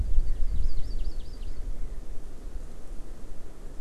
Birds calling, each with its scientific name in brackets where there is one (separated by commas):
Hawaii Amakihi (Chlorodrepanis virens)